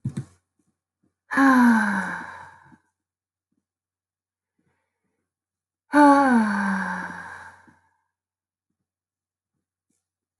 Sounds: Sigh